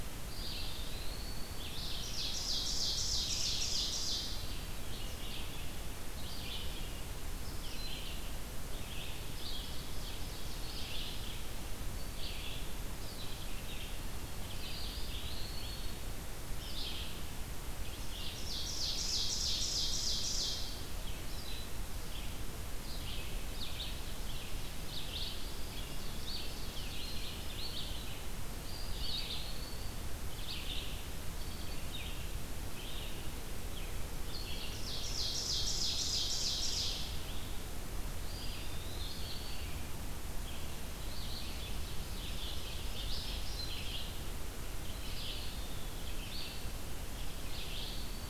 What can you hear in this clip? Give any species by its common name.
Red-eyed Vireo, Eastern Wood-Pewee, Ovenbird, Black-throated Green Warbler